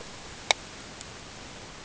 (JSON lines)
{"label": "ambient", "recorder": "HydroMoth"}